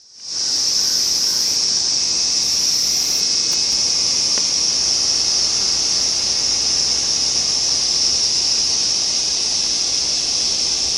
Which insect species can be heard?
Thopha saccata